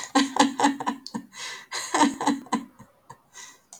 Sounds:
Laughter